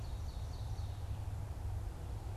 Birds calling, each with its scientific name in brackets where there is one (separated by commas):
Red-eyed Vireo (Vireo olivaceus), Ovenbird (Seiurus aurocapilla)